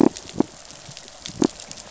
{"label": "biophony", "recorder": "SoundTrap 500"}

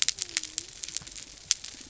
{"label": "biophony", "recorder": "SoundTrap 300"}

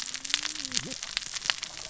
{"label": "biophony, cascading saw", "recorder": "SoundTrap 600 or HydroMoth"}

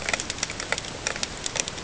{"label": "ambient", "recorder": "HydroMoth"}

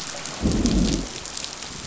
{"label": "biophony, growl", "recorder": "SoundTrap 500"}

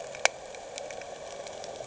{"label": "anthrophony, boat engine", "recorder": "HydroMoth"}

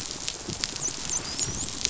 {"label": "biophony, dolphin", "recorder": "SoundTrap 500"}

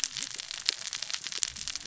{"label": "biophony, cascading saw", "recorder": "SoundTrap 600 or HydroMoth"}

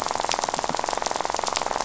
{"label": "biophony, rattle", "recorder": "SoundTrap 500"}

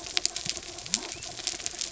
{"label": "anthrophony, mechanical", "recorder": "SoundTrap 300"}
{"label": "biophony", "recorder": "SoundTrap 300"}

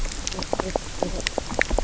{"label": "biophony, knock croak", "recorder": "SoundTrap 300"}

